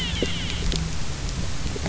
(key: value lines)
label: biophony
recorder: SoundTrap 300